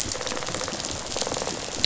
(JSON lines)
{"label": "biophony, rattle response", "recorder": "SoundTrap 500"}